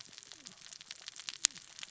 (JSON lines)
{"label": "biophony, cascading saw", "recorder": "SoundTrap 600 or HydroMoth"}